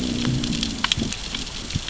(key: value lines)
label: biophony, growl
recorder: SoundTrap 600 or HydroMoth